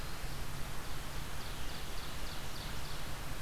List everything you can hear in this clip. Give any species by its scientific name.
Vireo olivaceus, Seiurus aurocapilla